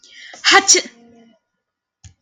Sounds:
Sneeze